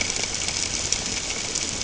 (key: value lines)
label: ambient
recorder: HydroMoth